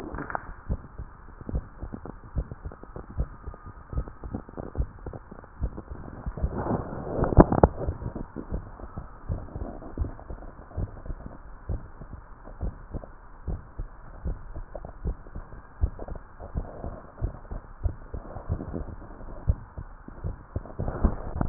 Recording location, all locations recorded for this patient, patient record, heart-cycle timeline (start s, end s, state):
tricuspid valve (TV)
aortic valve (AV)+pulmonary valve (PV)+tricuspid valve (TV)+mitral valve (MV)
#Age: Child
#Sex: Female
#Height: 140.0 cm
#Weight: 41.8 kg
#Pregnancy status: False
#Murmur: Absent
#Murmur locations: nan
#Most audible location: nan
#Systolic murmur timing: nan
#Systolic murmur shape: nan
#Systolic murmur grading: nan
#Systolic murmur pitch: nan
#Systolic murmur quality: nan
#Diastolic murmur timing: nan
#Diastolic murmur shape: nan
#Diastolic murmur grading: nan
#Diastolic murmur pitch: nan
#Diastolic murmur quality: nan
#Outcome: Abnormal
#Campaign: 2015 screening campaign
0.00	10.38	unannotated
10.38	10.76	diastole
10.76	10.90	S1
10.90	11.08	systole
11.08	11.20	S2
11.20	11.68	diastole
11.68	11.84	S1
11.84	12.02	systole
12.02	12.14	S2
12.14	12.60	diastole
12.60	12.76	S1
12.76	12.94	systole
12.94	13.04	S2
13.04	13.48	diastole
13.48	13.62	S1
13.62	13.80	systole
13.80	13.88	S2
13.88	14.24	diastole
14.24	14.38	S1
14.38	14.54	systole
14.54	14.66	S2
14.66	15.04	diastole
15.04	15.16	S1
15.16	15.36	systole
15.36	15.44	S2
15.44	15.80	diastole
15.80	15.98	S1
15.98	16.12	systole
16.12	16.22	S2
16.22	16.54	diastole
16.54	16.68	S1
16.68	16.83	systole
16.83	17.00	S2
17.00	17.18	diastole
17.18	17.35	S1
17.35	17.51	systole
17.51	17.65	S2
17.65	17.80	diastole
17.80	17.93	S1
17.93	18.09	systole
18.09	18.25	S2
18.25	18.46	diastole
18.46	18.60	S1
18.60	18.76	systole
18.76	18.90	S2
18.90	19.38	diastole
19.38	19.56	S1
19.56	19.78	systole
19.78	19.88	S2
19.88	20.22	diastole
20.22	20.36	S1
20.36	20.52	systole
20.52	20.64	S2
20.64	21.49	unannotated